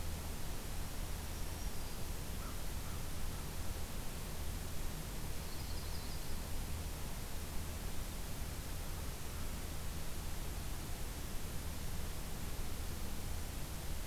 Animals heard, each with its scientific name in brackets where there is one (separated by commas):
Yellow-rumped Warbler (Setophaga coronata), American Crow (Corvus brachyrhynchos), Black-throated Green Warbler (Setophaga virens)